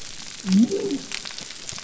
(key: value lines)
label: biophony
recorder: SoundTrap 300